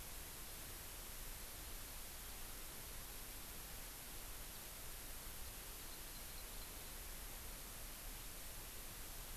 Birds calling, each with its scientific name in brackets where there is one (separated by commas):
Hawaii Amakihi (Chlorodrepanis virens)